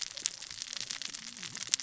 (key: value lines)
label: biophony, cascading saw
recorder: SoundTrap 600 or HydroMoth